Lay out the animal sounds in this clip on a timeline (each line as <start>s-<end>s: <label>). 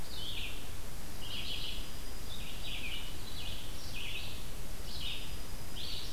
0.0s-6.1s: Red-eyed Vireo (Vireo olivaceus)
0.9s-3.0s: Dark-eyed Junco (Junco hyemalis)
4.7s-5.9s: Dark-eyed Junco (Junco hyemalis)